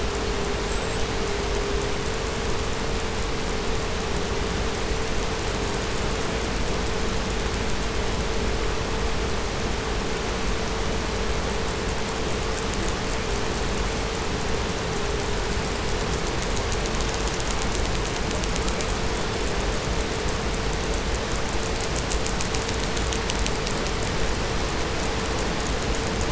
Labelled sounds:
0.5	1.2	killer whale, 7.2 to 8.0 kHz

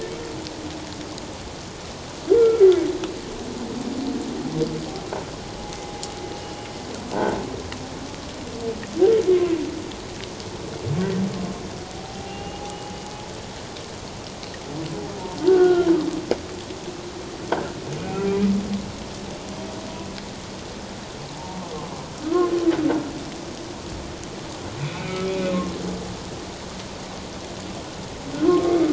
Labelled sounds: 2.4	2.6	humpback whale, 1.3 to 1.4 kHz
9.3	9.6	humpback whale, 0.94 to 1.2 kHz
11.9	12.8	humpback whale, 0.78 to 2.9 kHz
15.5	15.9	humpback whale, 1.3 to 1.6 kHz
18.0	18.5	humpback whale, 2.3 to 2.6 kHz
21.3	21.6	humpback whale, 0.84 to 0.97 kHz
22.2	22.5	humpback whale, 1.2 to 1.5 kHz
24.8	25.5	humpback whale, 2.2 to 2.7 kHz
28.4	28.7	humpback whale, 1.0 to 1.3 kHz

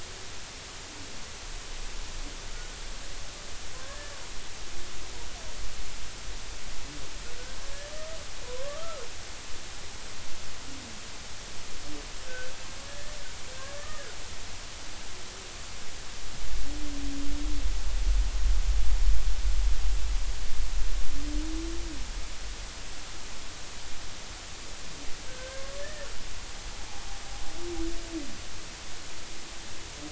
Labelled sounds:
3.8	4.1	humpback whale, 1.5 to 1.8 kHz
8.4	9.0	humpback whale, 0.93 to 1.4 kHz
12.2	13.2	humpback whale, 1.4 to 2.0 kHz
13.7	14.2	humpback whale, 1.1 to 1.9 kHz
25.3	26.1	humpback whale, 1.5 to 2.0 kHz

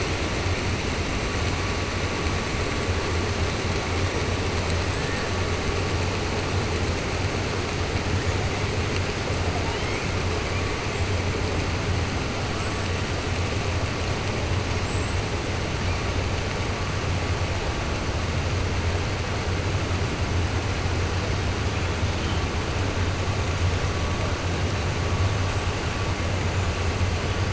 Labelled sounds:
14.7	15.2	killer whale, 6.8 to 8.0 kHz

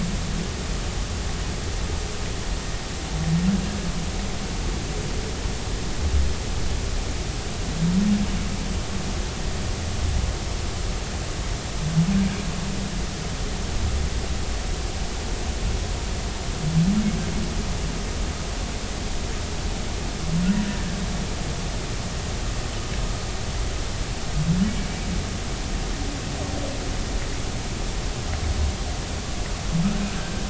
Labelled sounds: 30.1	30.4	humpback whale, 1.5 to 1.7 kHz

